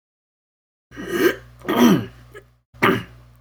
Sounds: Throat clearing